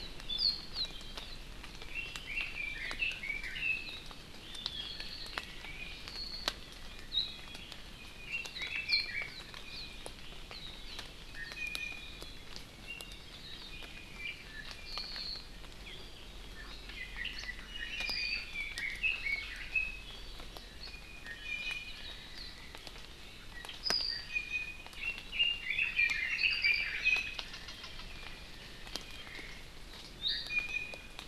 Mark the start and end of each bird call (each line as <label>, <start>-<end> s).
Red-billed Leiothrix (Leiothrix lutea), 1.8-4.0 s
Red-billed Leiothrix (Leiothrix lutea), 8.0-9.3 s
Iiwi (Drepanis coccinea), 11.3-12.2 s
Apapane (Himatione sanguinea), 13.7-15.4 s
Red-billed Leiothrix (Leiothrix lutea), 16.7-20.0 s
Iiwi (Drepanis coccinea), 20.9-22.1 s
Iiwi (Drepanis coccinea), 24.0-24.9 s
Red-billed Leiothrix (Leiothrix lutea), 24.9-27.0 s
Iiwi (Drepanis coccinea), 27.0-27.4 s
Iiwi (Drepanis coccinea), 30.2-31.2 s